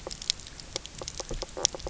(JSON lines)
{"label": "biophony, knock croak", "recorder": "SoundTrap 300"}